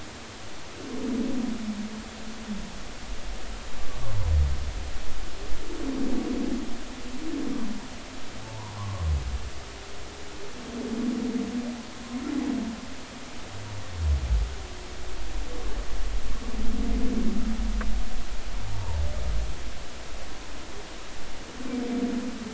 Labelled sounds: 8.4	9.0	humpback whale, 0.80 to 1.2 kHz
18.7	19.0	humpback whale, 0.83 to 1.1 kHz

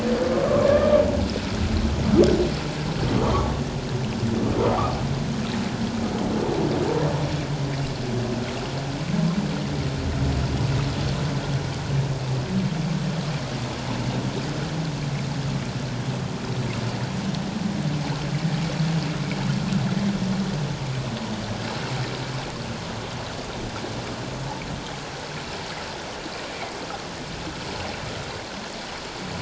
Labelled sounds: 0.4	1.0	humpback whale, 1.0 to 1.8 kHz

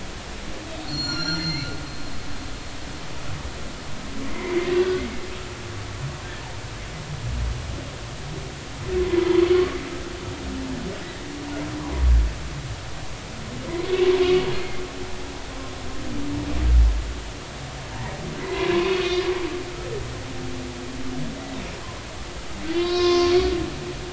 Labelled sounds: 0.8	1.7	humpback whale, 1.3 to 7.2 kHz
4.3	4.7	humpback whale, 2.0 to 2.3 kHz
9.6	9.8	humpback whale, 1.0 to 1.2 kHz
14.6	14.8	humpback whale, 2.1 to 2.2 kHz
18.4	19.2	humpback whale, 0.93 to 4.5 kHz
22.8	23.3	humpback whale, 0.99 to 5.4 kHz

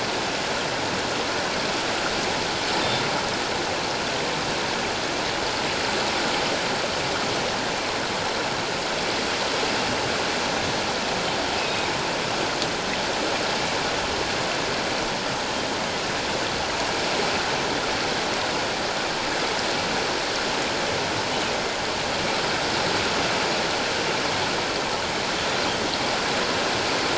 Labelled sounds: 11.6	11.9	killer whale, northern resident, G clan, 2.4 to 2.6 kHz

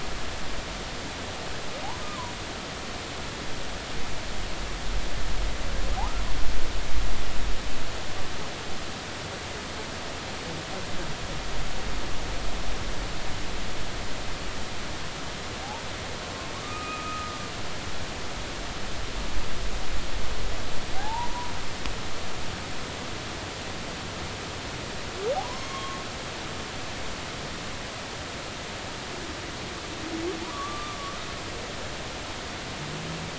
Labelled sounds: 2.0	2.3	humpback whale, 0.93 to 1.3 kHz
6.0	6.2	humpback whale, 0.80 to 1.4 kHz
16.6	17.3	humpback whale, 1.2 to 1.3 kHz
21.0	21.5	humpback whale, 0.80 to 1.0 kHz
25.3	26.0	humpback whale, 0.80 to 3.3 kHz
30.5	31.0	humpback whale, 1.1 to 1.3 kHz

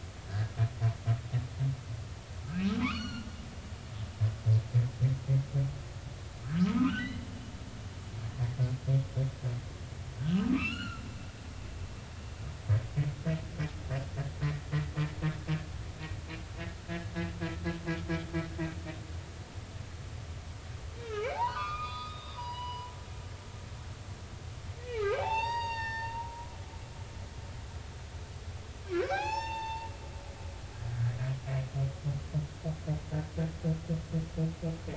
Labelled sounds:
0.3	0.5	humpback whale, 1.5 to 2.0 kHz
2.8	3.3	humpback whale, 0.96 to 5.9 kHz
6.7	7.2	humpback whale, 1.2 to 3.3 kHz
10.3	11.0	humpback whale, 0.99 to 4.4 kHz
21.1	22.9	humpback whale, 0.80 to 5.0 kHz
24.9	26.3	humpback whale, 0.80 to 6.6 kHz
28.9	29.9	humpback whale, 0.80 to 7.2 kHz

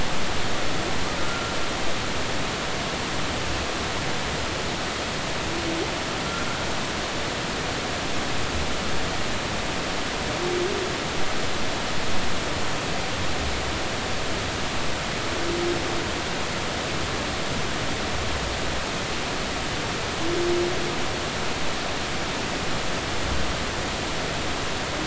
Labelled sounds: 1.2	1.5	humpback whale, 1.3 to 1.5 kHz

